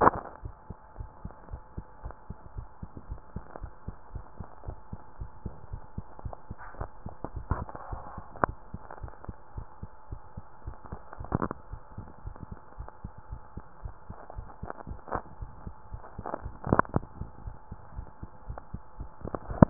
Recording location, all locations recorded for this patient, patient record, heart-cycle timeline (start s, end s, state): mitral valve (MV)
aortic valve (AV)+pulmonary valve (PV)+tricuspid valve (TV)+mitral valve (MV)
#Age: Child
#Sex: Male
#Height: 138.0 cm
#Weight: 37.4 kg
#Pregnancy status: False
#Murmur: Absent
#Murmur locations: nan
#Most audible location: nan
#Systolic murmur timing: nan
#Systolic murmur shape: nan
#Systolic murmur grading: nan
#Systolic murmur pitch: nan
#Systolic murmur quality: nan
#Diastolic murmur timing: nan
#Diastolic murmur shape: nan
#Diastolic murmur grading: nan
#Diastolic murmur pitch: nan
#Diastolic murmur quality: nan
#Outcome: Normal
#Campaign: 2015 screening campaign
0.00	0.96	unannotated
0.96	1.12	S1
1.12	1.24	systole
1.24	1.34	S2
1.34	1.48	diastole
1.48	1.62	S1
1.62	1.76	systole
1.76	1.86	S2
1.86	2.04	diastole
2.04	2.14	S1
2.14	2.28	systole
2.28	2.38	S2
2.38	2.56	diastole
2.56	2.68	S1
2.68	2.82	systole
2.82	2.90	S2
2.90	3.06	diastole
3.06	3.20	S1
3.20	3.34	systole
3.34	3.44	S2
3.44	3.60	diastole
3.60	3.72	S1
3.72	3.86	systole
3.86	3.96	S2
3.96	4.14	diastole
4.14	4.24	S1
4.24	4.36	systole
4.36	4.46	S2
4.46	4.64	diastole
4.64	4.78	S1
4.78	4.92	systole
4.92	5.02	S2
5.02	5.20	diastole
5.20	5.30	S1
5.30	5.44	systole
5.44	5.56	S2
5.56	5.72	diastole
5.72	5.82	S1
5.82	5.94	systole
5.94	6.06	S2
6.06	6.24	diastole
6.24	6.36	S1
6.36	6.50	systole
6.50	6.56	S2
6.56	6.76	diastole
6.76	6.90	S1
6.90	7.04	systole
7.04	7.16	S2
7.16	7.32	diastole
7.32	7.46	S1
7.46	7.52	systole
7.52	7.68	S2
7.68	7.88	diastole
7.88	8.02	S1
8.02	8.16	systole
8.16	8.24	S2
8.24	8.40	diastole
8.40	8.56	S1
8.56	8.70	systole
8.70	8.80	S2
8.80	9.00	diastole
9.00	9.12	S1
9.12	9.28	systole
9.28	9.38	S2
9.38	9.54	diastole
9.54	9.68	S1
9.68	9.82	systole
9.82	9.88	S2
9.88	10.08	diastole
10.08	10.22	S1
10.22	10.38	systole
10.38	10.46	S2
10.46	10.66	diastole
10.66	10.78	S1
10.78	10.92	systole
10.92	11.02	S2
11.02	11.19	diastole
11.19	11.27	S1
11.27	19.70	unannotated